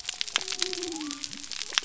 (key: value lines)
label: biophony
recorder: SoundTrap 300